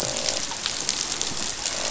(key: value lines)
label: biophony, croak
recorder: SoundTrap 500